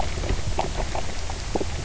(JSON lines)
{"label": "biophony", "recorder": "SoundTrap 300"}